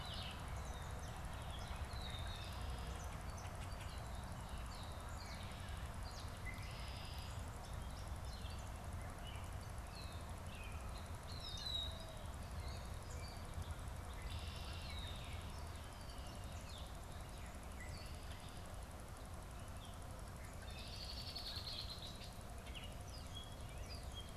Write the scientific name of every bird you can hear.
Dumetella carolinensis, Agelaius phoeniceus, Zenaida macroura